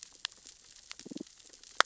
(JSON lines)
{"label": "biophony, damselfish", "recorder": "SoundTrap 600 or HydroMoth"}